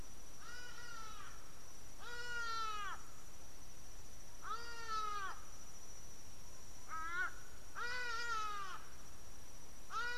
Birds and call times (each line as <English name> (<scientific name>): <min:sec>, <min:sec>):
Hadada Ibis (Bostrychia hagedash): 0:02.5